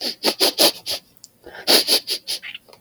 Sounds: Sniff